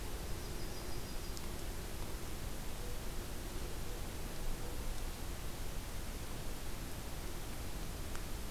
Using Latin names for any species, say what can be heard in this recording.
Setophaga coronata